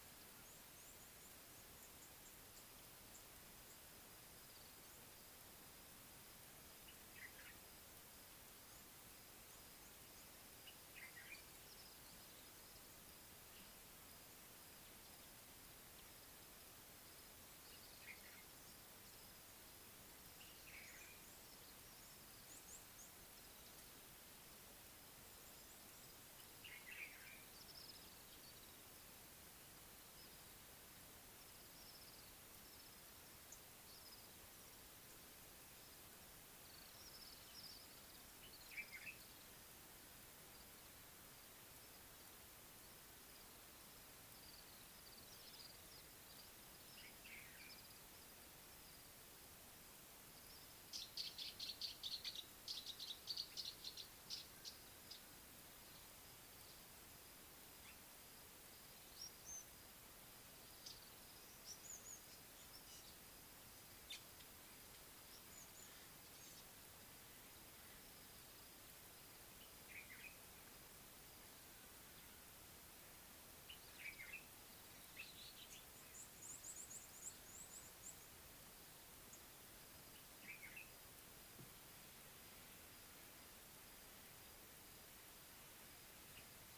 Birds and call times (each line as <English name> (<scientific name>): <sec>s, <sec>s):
Red-cheeked Cordonbleu (Uraeginthus bengalus): 2.1s, 22.7s, 77.0s
Common Bulbul (Pycnonotus barbatus): 11.0s, 27.1s, 38.8s, 47.4s, 74.1s
Little Swift (Apus affinis): 28.0s, 37.2s, 45.6s
Red-faced Crombec (Sylvietta whytii): 52.2s
African Gray Flycatcher (Bradornis microrhynchus): 61.9s